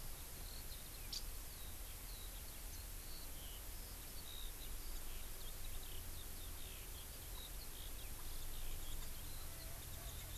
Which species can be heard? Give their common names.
Eurasian Skylark, Warbling White-eye